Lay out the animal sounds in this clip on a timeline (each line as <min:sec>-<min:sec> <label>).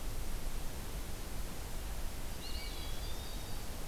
0:02.0-0:03.9 Yellow-rumped Warbler (Setophaga coronata)
0:02.2-0:03.8 Eastern Wood-Pewee (Contopus virens)
0:02.3-0:02.9 Wood Thrush (Hylocichla mustelina)